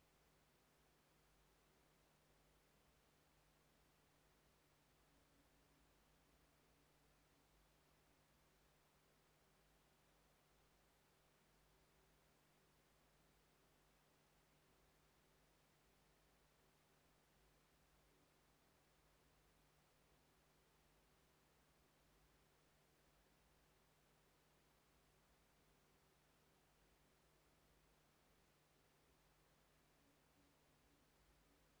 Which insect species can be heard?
Eumodicogryllus bordigalensis